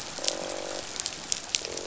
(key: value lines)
label: biophony, croak
recorder: SoundTrap 500